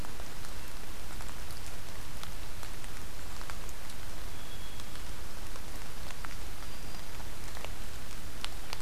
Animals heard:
forest ambience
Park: Marsh-Billings-Rockefeller National Historical Park